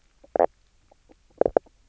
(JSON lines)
{"label": "biophony, knock croak", "recorder": "SoundTrap 300"}